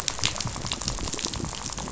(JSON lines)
{"label": "biophony, rattle", "recorder": "SoundTrap 500"}